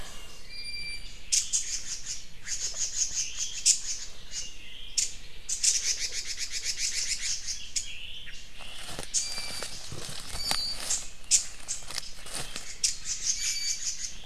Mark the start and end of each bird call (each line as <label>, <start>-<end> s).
Iiwi (Drepanis coccinea), 0.4-1.2 s
Red-billed Leiothrix (Leiothrix lutea), 1.3-4.6 s
Omao (Myadestes obscurus), 4.5-5.1 s
Red-billed Leiothrix (Leiothrix lutea), 4.9-7.9 s
Omao (Myadestes obscurus), 7.8-8.4 s
Iiwi (Drepanis coccinea), 9.1-9.7 s
Iiwi (Drepanis coccinea), 10.2-10.9 s
Red-billed Leiothrix (Leiothrix lutea), 10.8-11.8 s
Red-billed Leiothrix (Leiothrix lutea), 12.8-14.1 s
Iiwi (Drepanis coccinea), 13.2-13.9 s